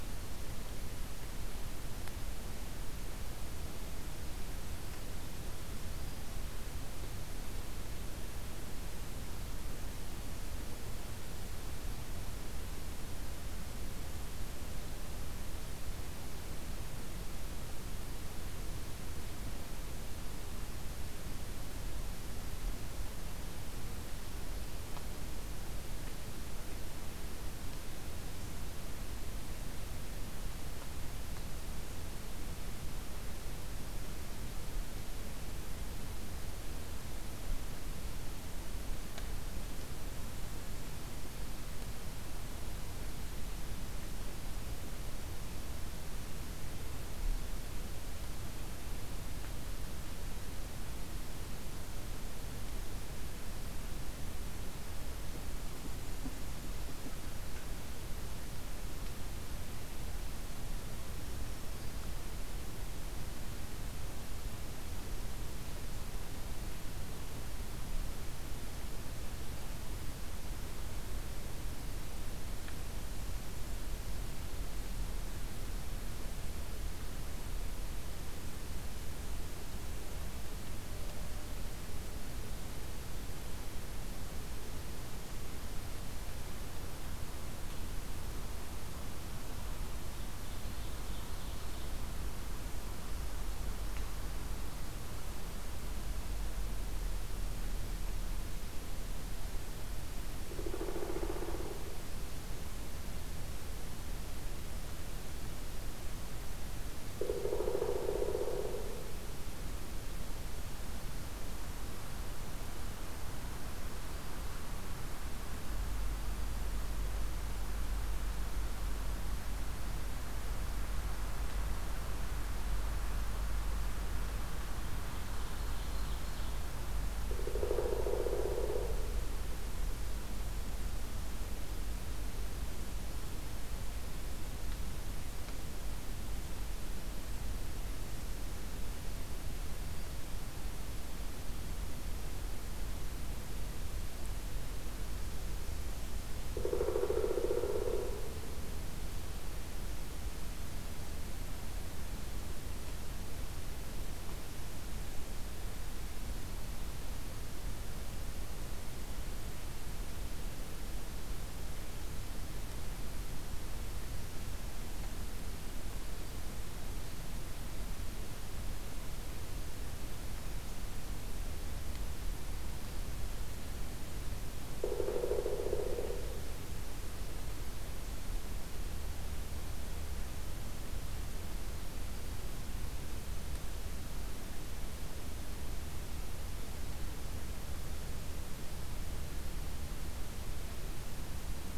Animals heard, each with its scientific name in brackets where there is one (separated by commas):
Pileated Woodpecker (Dryocopus pileatus), Ovenbird (Seiurus aurocapilla), Black-throated Green Warbler (Setophaga virens)